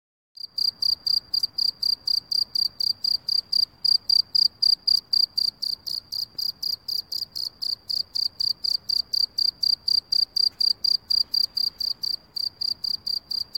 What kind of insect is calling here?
orthopteran